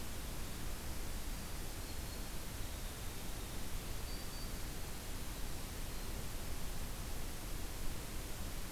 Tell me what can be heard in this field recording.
Black-throated Green Warbler, Winter Wren